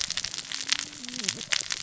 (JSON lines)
{"label": "biophony, cascading saw", "recorder": "SoundTrap 600 or HydroMoth"}